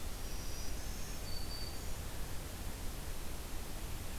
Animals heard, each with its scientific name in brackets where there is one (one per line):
Black-throated Green Warbler (Setophaga virens)